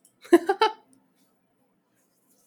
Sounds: Laughter